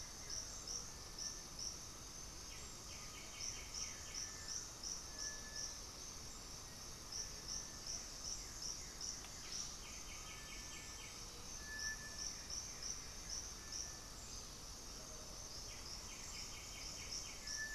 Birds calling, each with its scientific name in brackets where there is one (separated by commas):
Blue-gray Saltator (Saltator coerulescens), Horned Screamer (Anhima cornuta), White-winged Becard (Pachyramphus polychopterus), Black-faced Antthrush (Formicarius analis), unidentified bird, Cinereous Tinamou (Crypturellus cinereus)